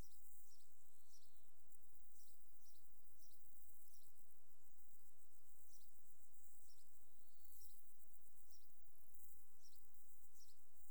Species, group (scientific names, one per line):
Poecilimon jonicus
Orthoptera